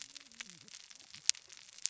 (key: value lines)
label: biophony, cascading saw
recorder: SoundTrap 600 or HydroMoth